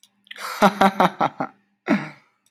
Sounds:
Laughter